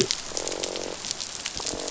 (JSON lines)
{"label": "biophony, croak", "recorder": "SoundTrap 500"}